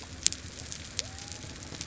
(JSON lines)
{"label": "biophony", "recorder": "SoundTrap 300"}